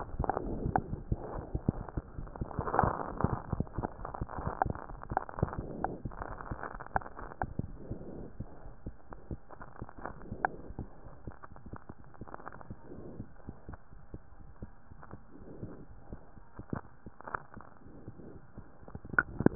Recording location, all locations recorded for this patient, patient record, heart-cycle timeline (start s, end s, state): aortic valve (AV)
aortic valve (AV)+pulmonary valve (PV)+tricuspid valve (TV)+mitral valve (MV)
#Age: Infant
#Sex: Male
#Height: 68.0 cm
#Weight: 7.0 kg
#Pregnancy status: False
#Murmur: Present
#Murmur locations: pulmonary valve (PV)+tricuspid valve (TV)
#Most audible location: pulmonary valve (PV)
#Systolic murmur timing: Early-systolic
#Systolic murmur shape: Plateau
#Systolic murmur grading: I/VI
#Systolic murmur pitch: Low
#Systolic murmur quality: Blowing
#Diastolic murmur timing: nan
#Diastolic murmur shape: nan
#Diastolic murmur grading: nan
#Diastolic murmur pitch: nan
#Diastolic murmur quality: nan
#Outcome: Abnormal
#Campaign: 2015 screening campaign
0.00	7.98	unannotated
7.98	8.14	diastole
8.14	8.26	S1
8.26	8.36	systole
8.36	8.48	S2
8.48	8.64	diastole
8.64	8.74	S1
8.74	8.84	systole
8.84	8.94	S2
8.94	9.12	diastole
9.12	9.20	S1
9.20	9.28	systole
9.28	9.40	S2
9.40	9.60	diastole
9.60	9.68	S1
9.68	9.80	systole
9.80	9.90	S2
9.90	10.10	diastole
10.10	10.20	S1
10.20	10.30	systole
10.30	10.40	S2
10.40	10.58	diastole
10.58	10.66	S1
10.66	10.76	systole
10.76	10.88	S2
10.88	11.06	diastole
11.06	11.14	S1
11.14	11.26	systole
11.26	11.34	S2
11.34	11.51	diastole
11.51	11.58	S1
11.58	11.68	systole
11.68	11.78	S2
11.78	12.00	diastole
12.00	12.08	S1
12.08	12.22	systole
12.22	12.32	S2
12.32	12.49	diastole
12.49	12.60	S1
12.60	12.68	systole
12.68	12.78	S2
12.78	12.96	diastole
12.96	13.06	S1
13.06	13.16	systole
13.16	13.28	S2
13.28	13.46	diastole
13.46	13.56	S1
13.56	13.68	systole
13.68	13.78	S2
13.78	13.93	diastole
13.93	14.02	S1
14.02	14.12	systole
14.12	14.22	S2
14.22	14.44	diastole
14.44	14.54	S1
14.54	14.62	systole
14.62	14.70	S2
14.70	14.92	diastole
14.92	15.00	S1
15.00	15.12	systole
15.12	15.20	S2
15.20	15.42	diastole
15.42	15.52	S1
15.52	15.60	systole
15.60	15.70	S2
15.70	15.90	diastole
15.90	15.98	S1
15.98	16.10	systole
16.10	16.20	S2
16.20	16.42	diastole
16.42	16.52	S1
16.52	16.66	systole
16.66	16.78	S2
16.78	17.02	diastole
17.02	17.12	S1
17.12	17.26	systole
17.26	17.34	S2
17.34	17.52	diastole
17.52	17.62	S1
17.62	17.76	systole
17.76	17.86	S2
17.86	18.04	diastole
18.04	18.14	S1
18.14	18.24	systole
18.24	18.36	S2
18.36	18.58	diastole
18.58	19.55	unannotated